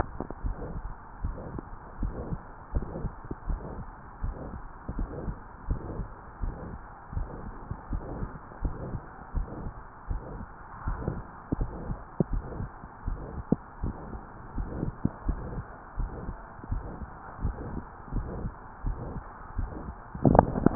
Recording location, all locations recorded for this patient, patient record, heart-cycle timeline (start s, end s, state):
mitral valve (MV)
aortic valve (AV)+pulmonary valve (PV)+tricuspid valve (TV)+mitral valve (MV)
#Age: Adolescent
#Sex: Female
#Height: 147.0 cm
#Weight: 36.1 kg
#Pregnancy status: False
#Murmur: Present
#Murmur locations: aortic valve (AV)+mitral valve (MV)+pulmonary valve (PV)+tricuspid valve (TV)
#Most audible location: pulmonary valve (PV)
#Systolic murmur timing: Mid-systolic
#Systolic murmur shape: Diamond
#Systolic murmur grading: III/VI or higher
#Systolic murmur pitch: High
#Systolic murmur quality: Harsh
#Diastolic murmur timing: nan
#Diastolic murmur shape: nan
#Diastolic murmur grading: nan
#Diastolic murmur pitch: nan
#Diastolic murmur quality: nan
#Outcome: Abnormal
#Campaign: 2015 screening campaign
0.00	1.54	unannotated
1.54	2.00	diastole
2.00	2.16	S1
2.16	2.26	systole
2.26	2.38	S2
2.38	2.74	diastole
2.74	2.88	S1
2.88	2.96	systole
2.96	3.12	S2
3.12	3.48	diastole
3.48	3.64	S1
3.64	3.72	systole
3.72	3.86	S2
3.86	4.20	diastole
4.20	4.34	S1
4.34	4.42	systole
4.42	4.52	S2
4.52	4.94	diastole
4.94	5.10	S1
5.10	5.22	systole
5.22	5.36	S2
5.36	5.70	diastole
5.70	5.86	S1
5.86	5.96	systole
5.96	6.08	S2
6.08	6.41	diastole
6.41	6.56	S1
6.56	6.64	systole
6.64	6.81	S2
6.81	7.14	diastole
7.14	7.28	S1
7.28	7.39	systole
7.39	7.49	S2
7.49	7.88	diastole
7.88	8.06	S1
8.06	8.16	systole
8.16	8.30	S2
8.30	8.61	diastole
8.61	8.74	S1
8.74	8.86	systole
8.86	9.00	S2
9.00	9.36	diastole
9.36	9.48	S1
9.48	9.58	systole
9.58	9.72	S2
9.72	10.08	diastole
10.08	10.22	S1
10.22	10.32	systole
10.32	10.40	S2
10.40	10.84	diastole
10.84	10.98	S1
10.98	11.06	systole
11.06	11.18	S2
11.18	11.60	diastole
11.60	11.76	S1
11.76	11.86	systole
11.86	11.98	S2
11.98	12.32	diastole
12.32	12.48	S1
12.48	12.58	systole
12.58	12.70	S2
12.70	13.06	diastole
13.06	13.24	S1
13.24	13.34	systole
13.34	13.44	S2
13.44	13.82	diastole
13.82	13.96	S1
13.96	14.08	systole
14.08	14.20	S2
14.20	14.54	diastole
14.54	14.68	S1
14.68	14.85	systole
14.85	14.93	S2
14.93	15.26	diastole
15.26	15.44	S1
15.44	15.54	systole
15.54	15.64	S2
15.64	15.98	diastole
15.98	16.12	S1
16.12	16.22	systole
16.22	16.34	S2
16.34	16.70	diastole
16.70	16.84	S1
16.84	16.92	systole
16.92	17.08	S2
17.08	17.42	diastole
17.42	17.58	S1
17.58	17.66	systole
17.66	17.78	S2
17.78	18.14	diastole
18.14	18.30	S1
18.30	18.38	systole
18.38	18.52	S2
18.52	18.86	diastole
18.86	18.98	S1
18.98	19.13	systole
19.13	19.22	S2
19.22	19.56	diastole
19.56	20.75	unannotated